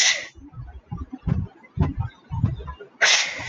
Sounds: Sneeze